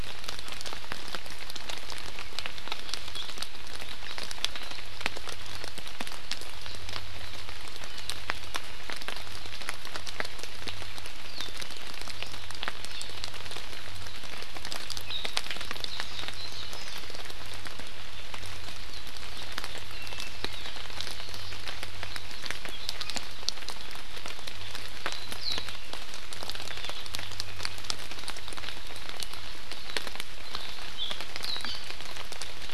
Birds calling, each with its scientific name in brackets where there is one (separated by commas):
Warbling White-eye (Zosterops japonicus), Iiwi (Drepanis coccinea)